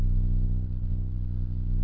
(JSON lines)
{"label": "anthrophony, boat engine", "recorder": "SoundTrap 300"}